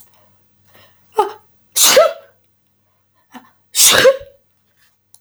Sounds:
Sneeze